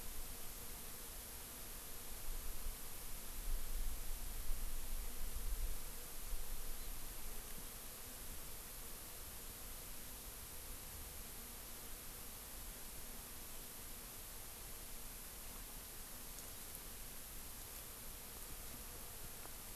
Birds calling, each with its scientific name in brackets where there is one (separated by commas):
Hawaii Amakihi (Chlorodrepanis virens)